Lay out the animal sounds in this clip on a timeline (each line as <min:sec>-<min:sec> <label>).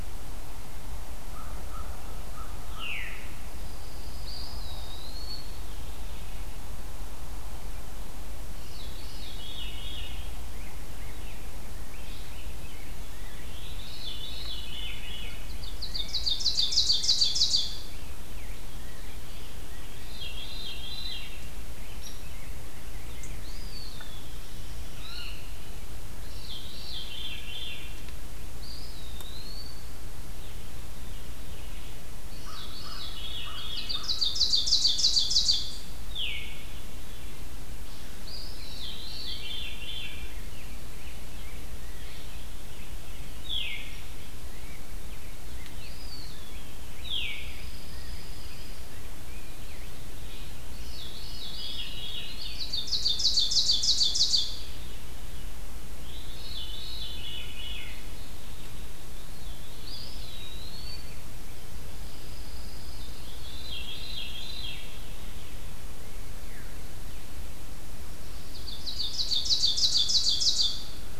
0:01.2-0:03.2 American Crow (Corvus brachyrhynchos)
0:02.7-0:03.6 Veery (Catharus fuscescens)
0:03.5-0:05.2 Pine Warbler (Setophaga pinus)
0:04.0-0:05.6 Eastern Wood-Pewee (Contopus virens)
0:08.5-0:10.5 Veery (Catharus fuscescens)
0:10.3-0:14.6 Rose-breasted Grosbeak (Pheucticus ludovicianus)
0:13.4-0:15.4 Veery (Catharus fuscescens)
0:15.3-0:18.1 Ovenbird (Seiurus aurocapilla)
0:15.4-0:19.9 Rose-breasted Grosbeak (Pheucticus ludovicianus)
0:19.8-0:21.5 Veery (Catharus fuscescens)
0:21.0-0:23.5 Rose-breasted Grosbeak (Pheucticus ludovicianus)
0:21.9-0:22.2 Hairy Woodpecker (Dryobates villosus)
0:23.3-0:24.6 Eastern Wood-Pewee (Contopus virens)
0:24.9-0:25.5 Blue Jay (Cyanocitta cristata)
0:26.1-0:28.1 Veery (Catharus fuscescens)
0:28.5-0:30.0 Eastern Wood-Pewee (Contopus virens)
0:30.5-0:33.8 Veery (Catharus fuscescens)
0:32.4-0:33.8 American Crow (Corvus brachyrhynchos)
0:33.5-0:36.1 Ovenbird (Seiurus aurocapilla)
0:36.0-0:37.4 Veery (Catharus fuscescens)
0:38.1-0:39.5 Eastern Wood-Pewee (Contopus virens)
0:38.6-0:40.4 Veery (Catharus fuscescens)
0:39.1-0:45.8 Rose-breasted Grosbeak (Pheucticus ludovicianus)
0:43.3-0:43.9 Veery (Catharus fuscescens)
0:45.6-0:47.0 Eastern Wood-Pewee (Contopus virens)
0:46.9-0:47.5 Veery (Catharus fuscescens)
0:47.4-0:48.9 Pine Warbler (Setophaga pinus)
0:50.5-0:52.4 Veery (Catharus fuscescens)
0:51.4-0:52.8 Eastern Wood-Pewee (Contopus virens)
0:52.1-0:54.9 Ovenbird (Seiurus aurocapilla)
0:56.0-0:58.1 Veery (Catharus fuscescens)
0:59.1-1:00.5 Veery (Catharus fuscescens)
0:59.7-1:01.3 Eastern Wood-Pewee (Contopus virens)
1:01.6-1:03.3 Pine Warbler (Setophaga pinus)
1:03.0-1:05.1 Veery (Catharus fuscescens)
1:06.3-1:06.7 Veery (Catharus fuscescens)
1:08.3-1:11.1 Ovenbird (Seiurus aurocapilla)